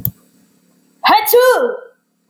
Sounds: Sneeze